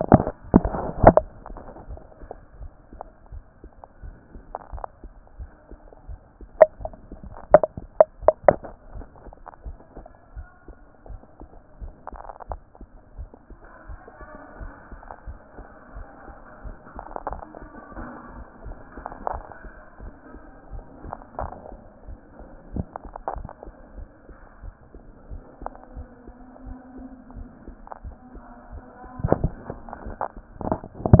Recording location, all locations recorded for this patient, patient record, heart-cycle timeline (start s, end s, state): mitral valve (MV)
aortic valve (AV)+pulmonary valve (PV)+tricuspid valve (TV)+mitral valve (MV)
#Age: nan
#Sex: Female
#Height: nan
#Weight: nan
#Pregnancy status: True
#Murmur: Absent
#Murmur locations: nan
#Most audible location: nan
#Systolic murmur timing: nan
#Systolic murmur shape: nan
#Systolic murmur grading: nan
#Systolic murmur pitch: nan
#Systolic murmur quality: nan
#Diastolic murmur timing: nan
#Diastolic murmur shape: nan
#Diastolic murmur grading: nan
#Diastolic murmur pitch: nan
#Diastolic murmur quality: nan
#Outcome: Normal
#Campaign: 2014 screening campaign
0.00	8.94	unannotated
8.94	9.06	S1
9.06	9.24	systole
9.24	9.34	S2
9.34	9.64	diastole
9.64	9.76	S1
9.76	9.96	systole
9.96	10.06	S2
10.06	10.36	diastole
10.36	10.46	S1
10.46	10.66	systole
10.66	10.76	S2
10.76	11.08	diastole
11.08	11.20	S1
11.20	11.40	systole
11.40	11.50	S2
11.50	11.80	diastole
11.80	11.92	S1
11.92	12.12	systole
12.12	12.22	S2
12.22	12.48	diastole
12.48	12.60	S1
12.60	12.78	systole
12.78	12.88	S2
12.88	13.16	diastole
13.16	13.28	S1
13.28	13.48	systole
13.48	13.58	S2
13.58	13.88	diastole
13.88	14.00	S1
14.00	14.18	systole
14.18	14.28	S2
14.28	14.60	diastole
14.60	14.72	S1
14.72	14.90	systole
14.90	15.00	S2
15.00	15.26	diastole
15.26	15.38	S1
15.38	15.56	systole
15.56	15.66	S2
15.66	15.94	diastole
15.94	16.06	S1
16.06	16.26	systole
16.26	16.36	S2
16.36	16.64	diastole
16.64	31.20	unannotated